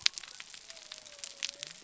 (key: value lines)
label: biophony
recorder: SoundTrap 300